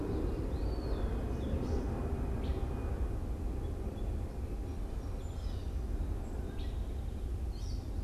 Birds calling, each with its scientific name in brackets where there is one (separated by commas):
Gray Catbird (Dumetella carolinensis), Eastern Wood-Pewee (Contopus virens)